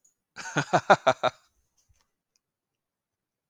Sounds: Laughter